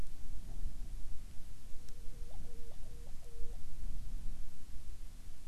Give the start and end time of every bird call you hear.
[1.60, 3.70] Hawaiian Petrel (Pterodroma sandwichensis)

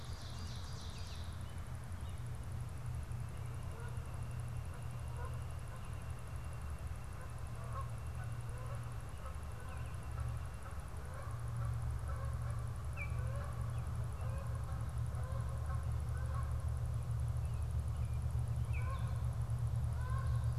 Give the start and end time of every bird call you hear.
[0.00, 1.48] Ovenbird (Seiurus aurocapilla)
[3.58, 20.58] Canada Goose (Branta canadensis)
[12.78, 13.28] Baltimore Oriole (Icterus galbula)
[18.58, 18.98] Baltimore Oriole (Icterus galbula)

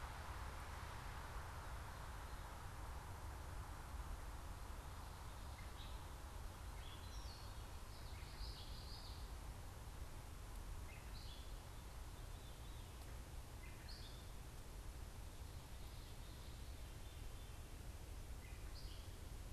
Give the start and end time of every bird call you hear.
[5.47, 11.57] Gray Catbird (Dumetella carolinensis)
[8.17, 9.27] Common Yellowthroat (Geothlypis trichas)
[11.87, 12.97] Veery (Catharus fuscescens)
[13.37, 14.37] Gray Catbird (Dumetella carolinensis)
[18.27, 19.27] Gray Catbird (Dumetella carolinensis)

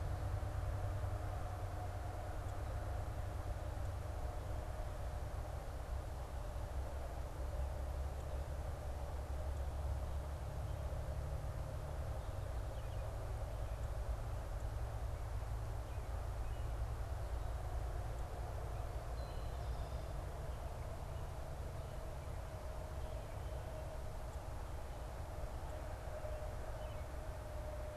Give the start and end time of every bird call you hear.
[12.58, 13.18] Red-eyed Vireo (Vireo olivaceus)
[15.58, 16.78] American Robin (Turdus migratorius)
[18.98, 20.28] Eastern Towhee (Pipilo erythrophthalmus)

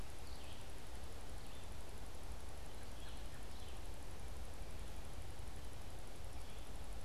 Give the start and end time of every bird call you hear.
[0.00, 3.90] Red-eyed Vireo (Vireo olivaceus)
[2.50, 3.70] American Robin (Turdus migratorius)

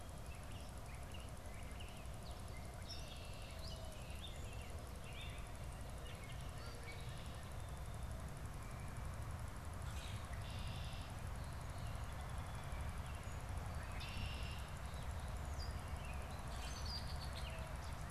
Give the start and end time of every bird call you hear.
[0.00, 7.41] Gray Catbird (Dumetella carolinensis)
[9.61, 10.21] Common Grackle (Quiscalus quiscula)
[10.21, 11.21] Red-winged Blackbird (Agelaius phoeniceus)
[11.41, 13.61] Song Sparrow (Melospiza melodia)
[13.71, 14.81] Red-winged Blackbird (Agelaius phoeniceus)
[15.31, 18.11] Red-winged Blackbird (Agelaius phoeniceus)

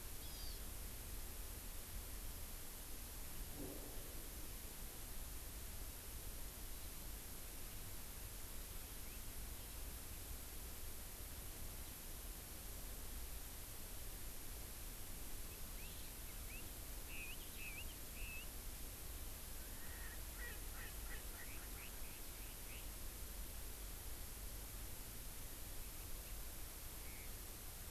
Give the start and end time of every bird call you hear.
[0.19, 0.59] Hawaii Amakihi (Chlorodrepanis virens)
[15.49, 18.49] Chinese Hwamei (Garrulax canorus)
[19.39, 22.89] Erckel's Francolin (Pternistis erckelii)

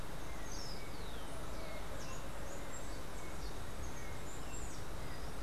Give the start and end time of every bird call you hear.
[0.00, 5.42] Rufous-collared Sparrow (Zonotrichia capensis)
[1.90, 5.10] Steely-vented Hummingbird (Saucerottia saucerottei)

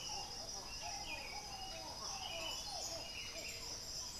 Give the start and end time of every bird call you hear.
[0.00, 4.19] Buff-throated Saltator (Saltator maximus)
[1.40, 4.19] Bluish-fronted Jacamar (Galbula cyanescens)

